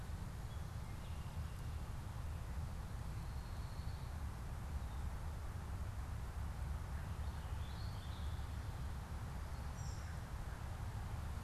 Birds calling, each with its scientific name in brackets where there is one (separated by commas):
unidentified bird